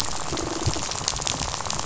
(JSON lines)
{"label": "biophony, rattle", "recorder": "SoundTrap 500"}